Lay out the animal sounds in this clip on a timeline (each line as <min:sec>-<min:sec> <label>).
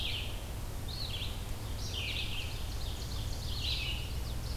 0:00.0-0:04.6 Red-eyed Vireo (Vireo olivaceus)
0:02.4-0:03.7 Ovenbird (Seiurus aurocapilla)
0:03.3-0:04.5 Chestnut-sided Warbler (Setophaga pensylvanica)